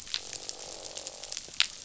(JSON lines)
{"label": "biophony, croak", "recorder": "SoundTrap 500"}